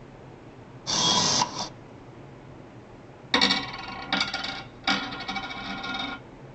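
At 0.85 seconds, you can hear a camera. Then at 3.31 seconds, a coin drops.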